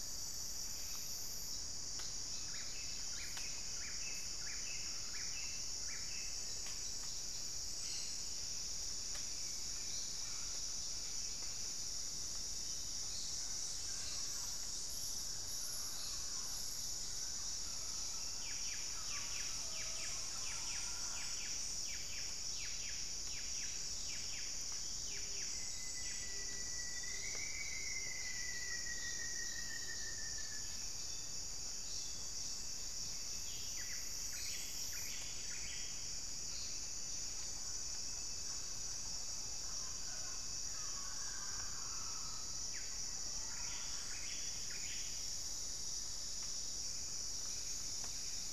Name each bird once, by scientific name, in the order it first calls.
Cantorchilus leucotis, Myrmotherula axillaris, Amazona farinosa, Capito auratus, Formicarius rufifrons, Saltator maximus